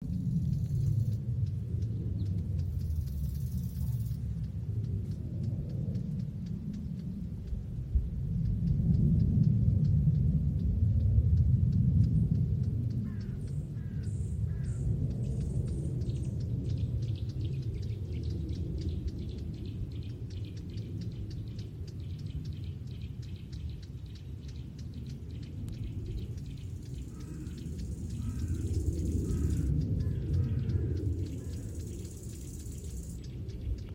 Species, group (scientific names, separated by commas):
Chorthippus biguttulus, Orthoptera